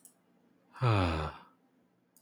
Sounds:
Sigh